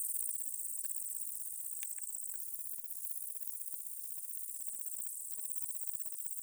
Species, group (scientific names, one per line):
Tettigonia viridissima
Orthoptera